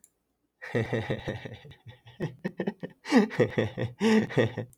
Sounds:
Laughter